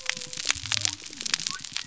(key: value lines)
label: biophony
recorder: SoundTrap 300